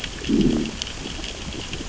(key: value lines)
label: biophony, growl
recorder: SoundTrap 600 or HydroMoth